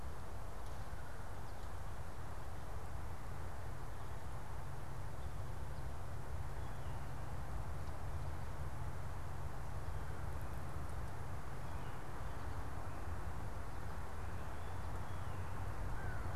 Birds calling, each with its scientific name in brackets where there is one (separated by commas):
unidentified bird